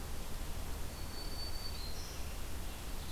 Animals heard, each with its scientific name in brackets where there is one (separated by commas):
Black-throated Green Warbler (Setophaga virens)